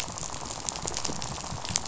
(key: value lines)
label: biophony, rattle
recorder: SoundTrap 500